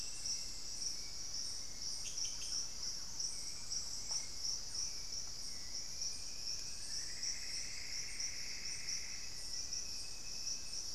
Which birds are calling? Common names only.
Hauxwell's Thrush, Thrush-like Wren, Plumbeous Antbird